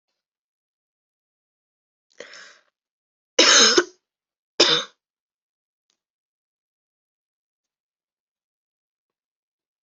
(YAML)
expert_labels:
- quality: good
  cough_type: wet
  dyspnea: false
  wheezing: false
  stridor: false
  choking: false
  congestion: false
  nothing: true
  diagnosis: healthy cough
  severity: pseudocough/healthy cough
age: 21
gender: female
respiratory_condition: false
fever_muscle_pain: false
status: symptomatic